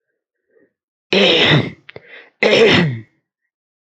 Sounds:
Throat clearing